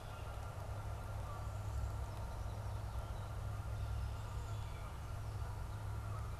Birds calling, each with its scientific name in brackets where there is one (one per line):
Canada Goose (Branta canadensis)